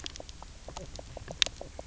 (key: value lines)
label: biophony, knock croak
recorder: SoundTrap 300